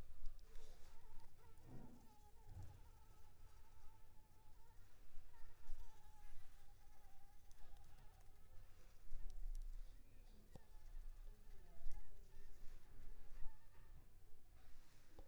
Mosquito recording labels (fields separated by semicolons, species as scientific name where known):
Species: Anopheles gambiae s.l.; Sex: female; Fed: unfed; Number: one; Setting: cup